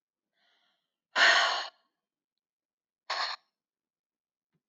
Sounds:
Sigh